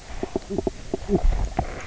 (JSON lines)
{"label": "biophony, knock croak", "recorder": "SoundTrap 300"}